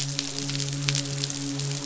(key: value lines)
label: biophony, midshipman
recorder: SoundTrap 500